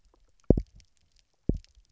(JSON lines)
{"label": "biophony, double pulse", "recorder": "SoundTrap 300"}